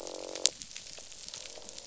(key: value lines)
label: biophony, croak
recorder: SoundTrap 500